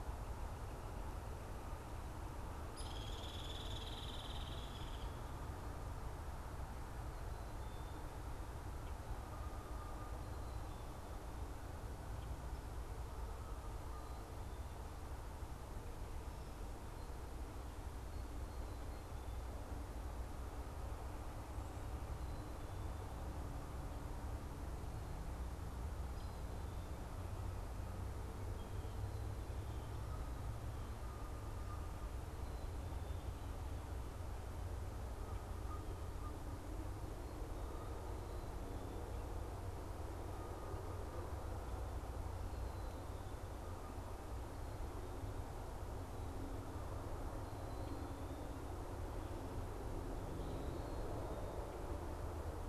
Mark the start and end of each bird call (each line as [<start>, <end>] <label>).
[0.00, 4.60] unidentified bird
[2.70, 4.80] Hairy Woodpecker (Dryobates villosus)
[9.00, 10.40] Canada Goose (Branta canadensis)
[26.00, 26.50] Hairy Woodpecker (Dryobates villosus)
[30.00, 32.30] Canada Goose (Branta canadensis)
[35.10, 38.10] Canada Goose (Branta canadensis)